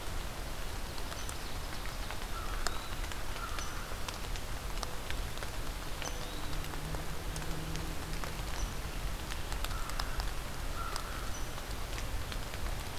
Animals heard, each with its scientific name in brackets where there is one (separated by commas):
American Crow (Corvus brachyrhynchos), Ovenbird (Seiurus aurocapilla)